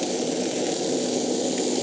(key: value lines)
label: anthrophony, boat engine
recorder: HydroMoth